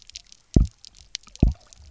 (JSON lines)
{"label": "biophony, double pulse", "recorder": "SoundTrap 300"}